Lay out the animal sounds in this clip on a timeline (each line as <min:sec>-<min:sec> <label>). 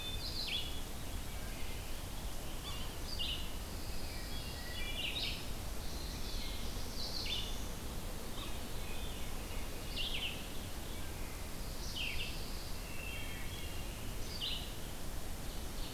0:00.0-0:15.9 Red-eyed Vireo (Vireo olivaceus)
0:02.6-0:02.9 Yellow-bellied Sapsucker (Sphyrapicus varius)
0:03.5-0:05.0 Pine Warbler (Setophaga pinus)
0:04.0-0:05.1 Wood Thrush (Hylocichla mustelina)
0:05.9-0:07.8 Black-throated Blue Warbler (Setophaga caerulescens)
0:08.4-0:09.8 Veery (Catharus fuscescens)
0:11.5-0:13.0 Pine Warbler (Setophaga pinus)
0:12.8-0:13.8 Wood Thrush (Hylocichla mustelina)
0:15.3-0:15.9 Ovenbird (Seiurus aurocapilla)